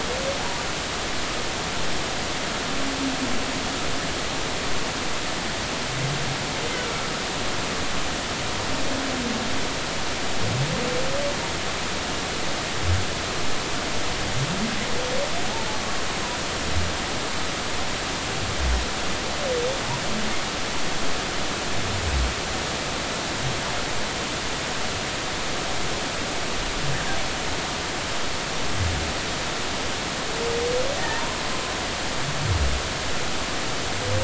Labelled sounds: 31.0	31.4	humpback whale, 0.80 to 1.9 kHz

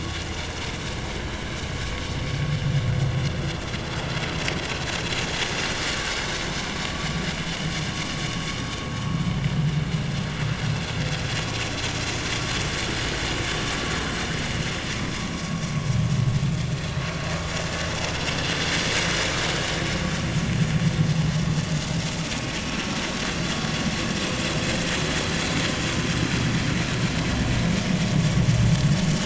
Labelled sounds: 1.2	1.5	vessel noise, 3.1 to 3.2 kHz
21.0	21.3	vessel noise, 6.0 to 6.3 kHz
22.6	22.8	vessel noise, 2.4 to 2.7 kHz

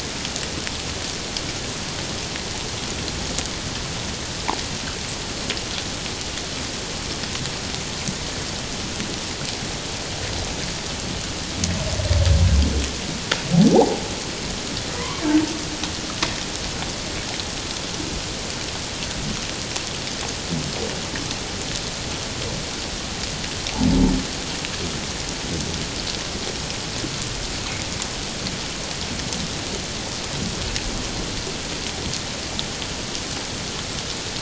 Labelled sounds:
13.7	14.0	humpback whale, 0.78 to 0.97 kHz
15.0	15.2	humpback whale, 0.94 to 1.2 kHz

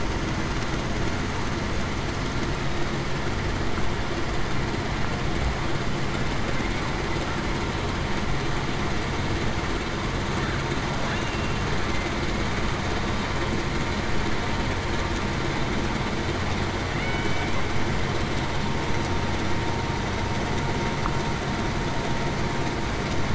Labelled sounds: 17.0	17.5	killer whale, Bigg's (transient), 2.1 to 3.0 kHz

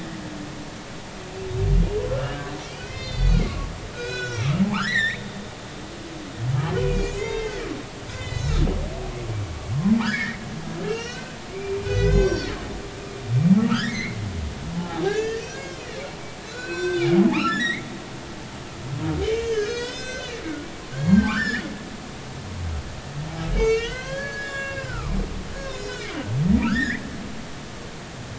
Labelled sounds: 2.1	5.3	humpback whale, 1.0 to 6.5 kHz
6.8	7.6	humpback whale, 1.8 to 7.1 kHz
8.1	8.7	humpback whale, 1.2 to 4.1 kHz
10.0	10.4	humpback whale, 1.2 to 2.3 kHz
10.9	12.6	humpback whale, 1.3 to 6.8 kHz
13.6	15.9	humpback whale, 0.80 to 6.6 kHz
16.4	17.8	humpback whale, 1.1 to 7.8 kHz
19.2	20.4	humpback whale, 1.4 to 7.7 kHz
20.9	21.6	humpback whale, 1.0 to 7.1 kHz
23.5	25.1	humpback whale, 0.96 to 7.3 kHz
25.5	27.0	humpback whale, 1.2 to 6.7 kHz

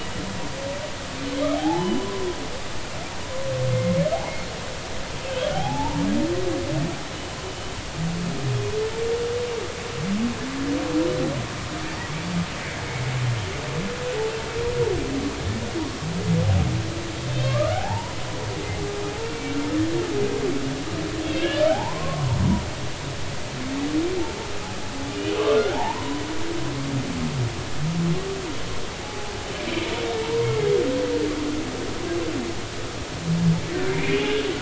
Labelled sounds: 1.5	2.2	humpback whale, 0.80 to 3.1 kHz
5.5	6.0	humpback whale, 0.80 to 1.1 kHz
17.3	18.2	humpback whale, 0.80 to 2.7 kHz
19.2	19.5	humpback whale, 2.2 to 2.4 kHz
21.2	22.4	humpback whale, 0.80 to 3.6 kHz
25.5	26.2	humpback whale, 0.80 to 1.6 kHz
29.0	30.4	humpback whale, 0.80 to 1.0 kHz
33.9	34.4	humpback whale, 2.0 to 2.9 kHz

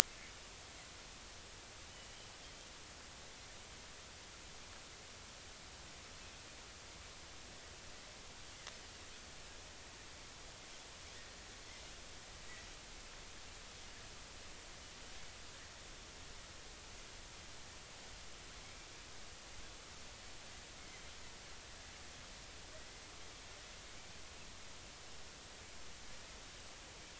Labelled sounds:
1.9	2.2	Pacific white-sided dolphin, 2.9 to 3.0 kHz

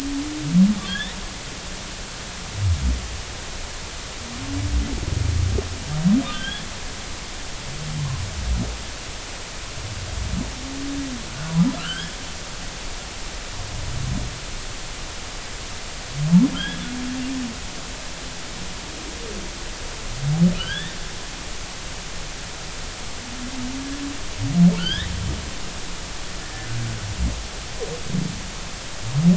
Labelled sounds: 6.3	6.7	humpback whale, 1.5 to 3.5 kHz
11.8	12.2	humpback whale, 1.2 to 3.5 kHz
16.5	16.8	humpback whale, 1.3 to 3.4 kHz
20.5	21.0	humpback whale, 1.3 to 3.7 kHz
24.8	25.1	humpback whale, 1.3 to 3.9 kHz

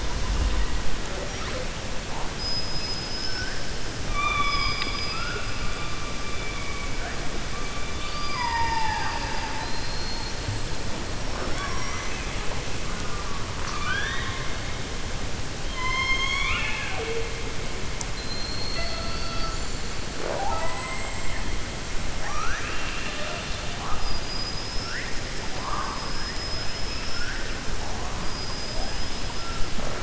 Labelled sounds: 2.3	3.6	killer whale, 4.4 to 6.1 kHz
4.0	5.6	killer whale, 0.45 to 5.1 kHz
7.9	10.4	killer whale, 0.61 to 5.7 kHz
11.3	12.2	killer whale, 5.4 to 6.5 kHz
13.5	14.4	killer whale, 1.1 to 6.0 kHz
15.6	17.3	killer whale, 0.47 to 6.6 kHz
20.6	21.3	killer whale, 7.4 to 7.8 kHz
22.1	23.7	killer whale, 0.62 to 4.2 kHz
26.3	27.3	killer whale, 4.8 to 5.6 kHz
28.2	29.2	killer whale, 4.9 to 5.9 kHz

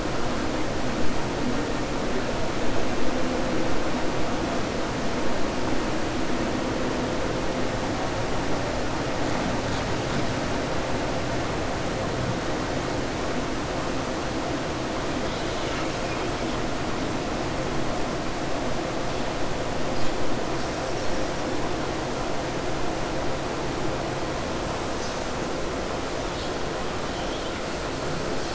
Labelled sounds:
27.1	27.6	killer whale, southern resident, 2.2 to 4.3 kHz

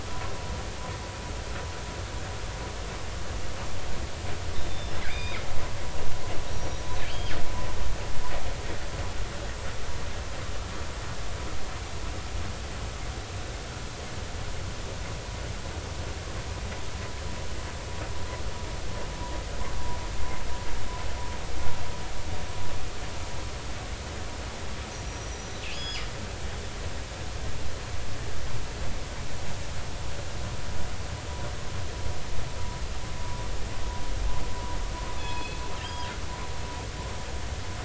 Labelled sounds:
5.1	5.4	killer whale, northern resident, G clan, GI subclan, call N23i, 2.0 to 5.0 kHz
6.5	6.8	killer whale, northern resident, G clan, GI subclan, call N23i, 5.7 to 5.8 kHz
25.1	26.1	killer whale, northern resident, G clan, GI subclan, call N23i, 3.3 to 6.8 kHz
35.2	35.7	killer whale, northern resident, G clan, call N24ii, 2.5 to 5.2 kHz
35.8	36.1	killer whale, northern resident, G clan, GI subclan, call N23i, 3.1 to 5.0 kHz

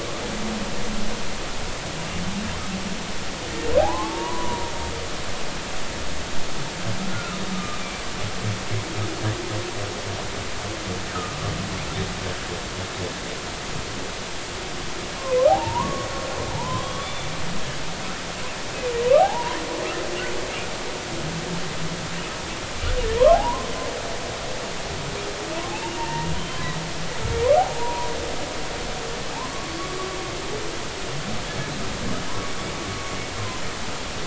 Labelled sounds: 3.8	4.7	humpback whale, 0.80 to 1.2 kHz
7.1	7.8	humpback whale, 1.2 to 1.5 kHz
11.1	11.4	humpback whale, 1.1 to 1.6 kHz
15.5	16.1	humpback whale, 0.80 to 1.2 kHz
17.0	17.8	humpback whale, 0.83 to 3.6 kHz
19.2	19.6	humpback whale, 0.80 to 1.1 kHz
23.3	23.7	humpback whale, 0.80 to 1.2 kHz
25.7	26.8	humpback whale, 0.86 to 3.2 kHz
27.6	28.1	humpback whale, 0.80 to 1.0 kHz
29.3	29.8	humpback whale, 0.83 to 1.2 kHz

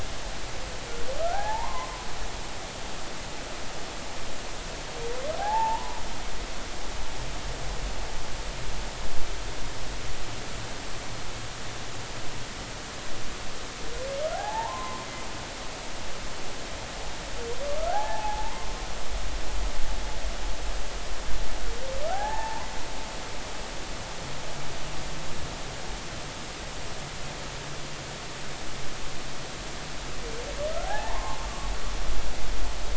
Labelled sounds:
1.2	2.1	humpback whale, 0.80 to 1.8 kHz
5.4	6.0	humpback whale, 0.80 to 1.8 kHz
14.3	15.1	humpback whale, 0.80 to 1.1 kHz
17.8	18.7	humpback whale, 0.80 to 1.8 kHz
22.0	22.7	humpback whale, 0.80 to 1.8 kHz
30.8	31.7	humpback whale, 0.80 to 1.9 kHz

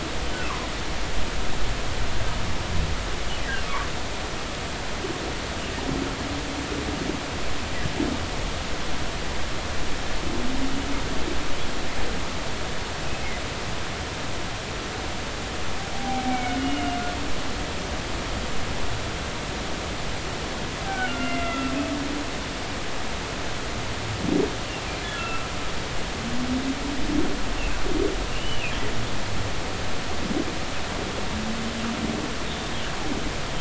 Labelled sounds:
15.9	17.0	humpback whale, 0.80 to 2.9 kHz
20.8	21.7	humpback whale, 1.3 to 2.8 kHz
25.1	25.5	humpback whale, 1.2 to 2.8 kHz
28.3	28.7	humpback whale, 2.4 to 3.1 kHz

